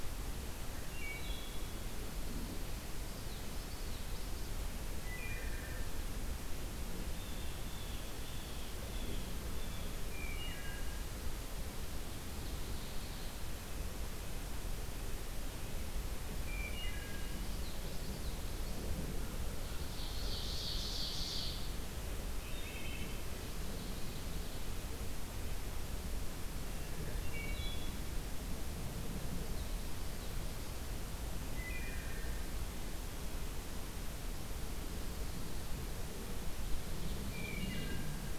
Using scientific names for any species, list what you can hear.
Hylocichla mustelina, Geothlypis trichas, Cyanocitta cristata, Seiurus aurocapilla